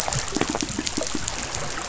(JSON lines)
{"label": "biophony", "recorder": "SoundTrap 500"}